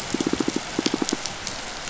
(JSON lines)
{"label": "biophony, pulse", "recorder": "SoundTrap 500"}